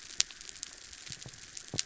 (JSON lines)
{"label": "anthrophony, mechanical", "recorder": "SoundTrap 300"}